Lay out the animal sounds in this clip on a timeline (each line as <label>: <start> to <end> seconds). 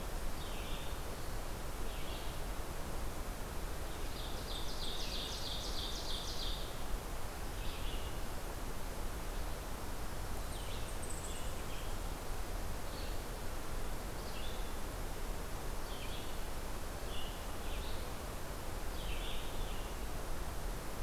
Red-eyed Vireo (Vireo olivaceus): 0.0 to 21.0 seconds
Ovenbird (Seiurus aurocapilla): 4.0 to 6.8 seconds